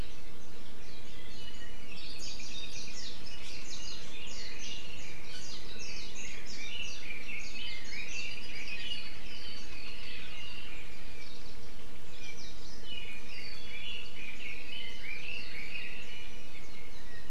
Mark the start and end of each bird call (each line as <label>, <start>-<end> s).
Iiwi (Drepanis coccinea), 1.4-1.9 s
Apapane (Himatione sanguinea), 1.9-3.0 s
Red-billed Leiothrix (Leiothrix lutea), 3.0-11.3 s
Apapane (Himatione sanguinea), 8.2-9.0 s
Red-billed Leiothrix (Leiothrix lutea), 12.8-17.3 s